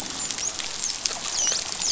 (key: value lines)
label: biophony, dolphin
recorder: SoundTrap 500